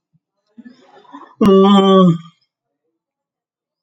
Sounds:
Sigh